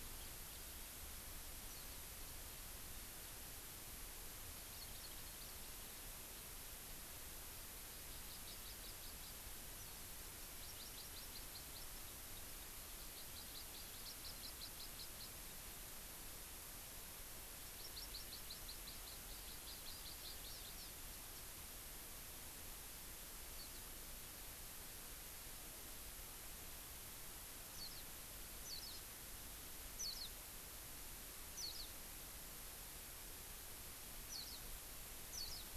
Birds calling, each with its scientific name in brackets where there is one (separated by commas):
Warbling White-eye (Zosterops japonicus), Hawaii Amakihi (Chlorodrepanis virens), House Finch (Haemorhous mexicanus)